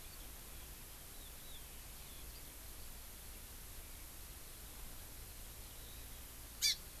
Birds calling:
Hawaii Amakihi (Chlorodrepanis virens)

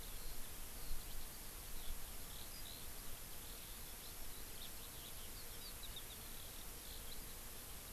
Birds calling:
Eurasian Skylark (Alauda arvensis)

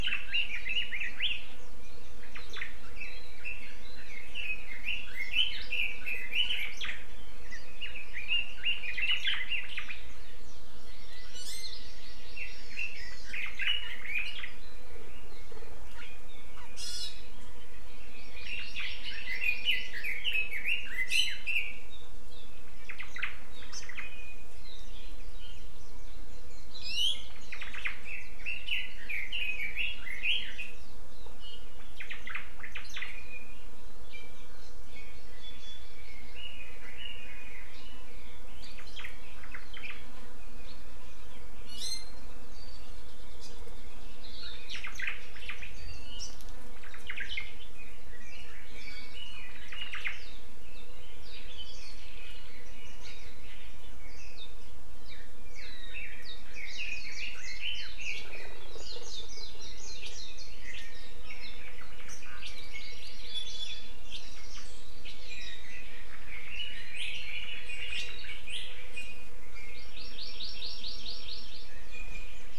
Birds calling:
Red-billed Leiothrix (Leiothrix lutea), Iiwi (Drepanis coccinea), Omao (Myadestes obscurus), Hawaii Amakihi (Chlorodrepanis virens), Warbling White-eye (Zosterops japonicus)

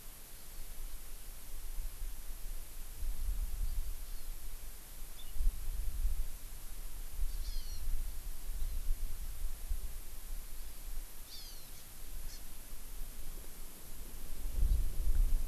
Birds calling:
Hawaii Amakihi (Chlorodrepanis virens)

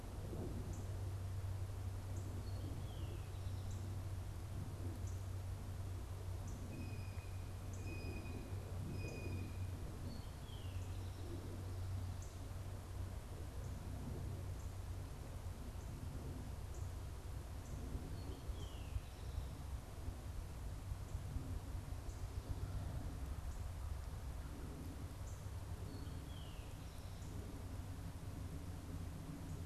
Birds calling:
Eastern Towhee (Pipilo erythrophthalmus), Blue Jay (Cyanocitta cristata)

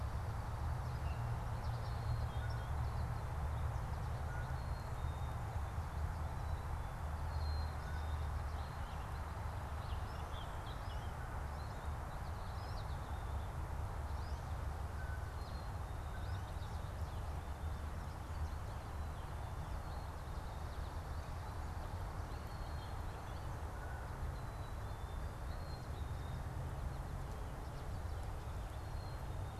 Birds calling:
American Goldfinch (Spinus tristis), Purple Finch (Haemorhous purpureus), Black-capped Chickadee (Poecile atricapillus)

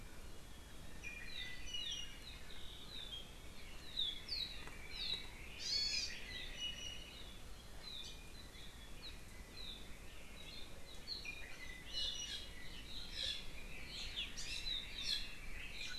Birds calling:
Iiwi (Drepanis coccinea), Hawaii Amakihi (Chlorodrepanis virens)

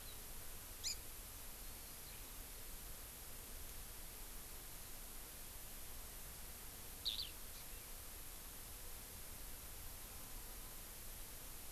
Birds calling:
Eurasian Skylark (Alauda arvensis), Hawaii Amakihi (Chlorodrepanis virens)

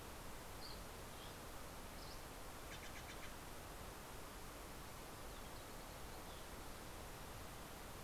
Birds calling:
Steller's Jay (Cyanocitta stelleri), Dusky Flycatcher (Empidonax oberholseri)

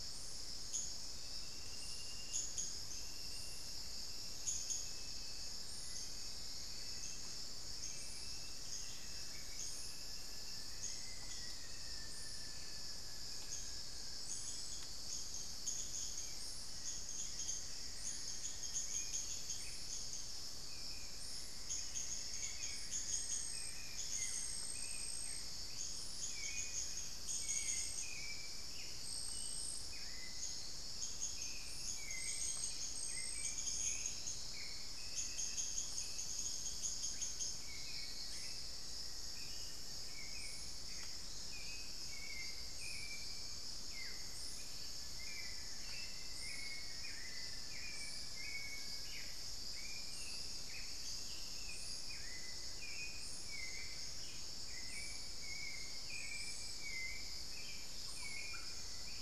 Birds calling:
Ringed Antpipit (Corythopis torquatus), unidentified bird, Buff-throated Woodcreeper (Xiphorhynchus guttatus), Black-faced Antthrush (Formicarius analis), Elegant Woodcreeper (Xiphorhynchus elegans), Rufous-fronted Antthrush (Formicarius rufifrons), Plumbeous Antbird (Myrmelastes hyperythrus), Hauxwell's Thrush (Turdus hauxwelli)

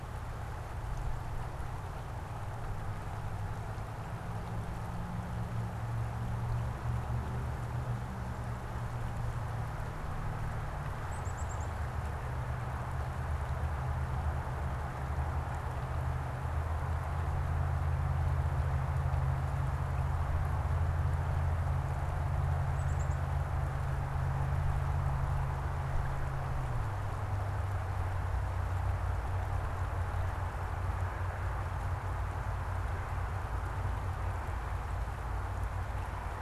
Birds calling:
Black-capped Chickadee (Poecile atricapillus)

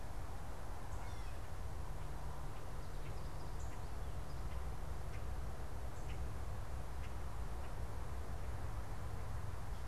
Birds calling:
American Goldfinch (Spinus tristis), Gray Catbird (Dumetella carolinensis), Common Grackle (Quiscalus quiscula)

